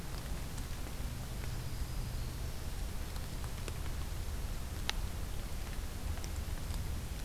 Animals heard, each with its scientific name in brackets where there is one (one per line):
Black-throated Green Warbler (Setophaga virens)